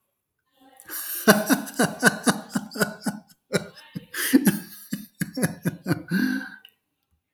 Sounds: Laughter